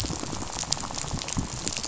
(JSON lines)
{"label": "biophony, rattle", "recorder": "SoundTrap 500"}